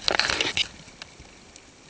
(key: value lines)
label: ambient
recorder: HydroMoth